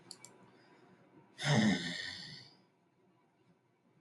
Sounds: Sigh